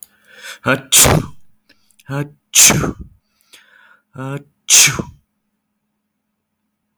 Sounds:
Sneeze